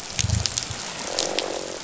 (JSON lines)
{"label": "biophony, croak", "recorder": "SoundTrap 500"}